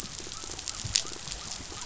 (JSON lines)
{"label": "biophony", "recorder": "SoundTrap 500"}